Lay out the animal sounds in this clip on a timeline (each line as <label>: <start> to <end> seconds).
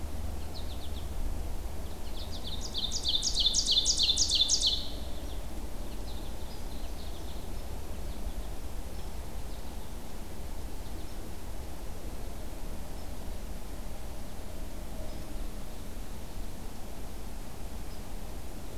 American Goldfinch (Spinus tristis): 0.4 to 1.1 seconds
American Goldfinch (Spinus tristis): 1.8 to 2.4 seconds
Ovenbird (Seiurus aurocapilla): 2.1 to 4.9 seconds
American Goldfinch (Spinus tristis): 5.0 to 5.4 seconds
American Goldfinch (Spinus tristis): 5.8 to 6.4 seconds
American Goldfinch (Spinus tristis): 6.8 to 7.5 seconds
American Goldfinch (Spinus tristis): 7.9 to 8.4 seconds
American Goldfinch (Spinus tristis): 10.6 to 11.1 seconds